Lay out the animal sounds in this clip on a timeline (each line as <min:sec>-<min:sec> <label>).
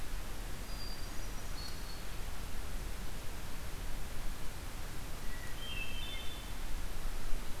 0:00.3-0:02.1 Hermit Thrush (Catharus guttatus)
0:05.2-0:06.5 Hermit Thrush (Catharus guttatus)